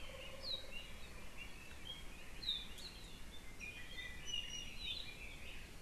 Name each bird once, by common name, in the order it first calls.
Apapane